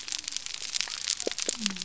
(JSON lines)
{"label": "biophony", "recorder": "SoundTrap 300"}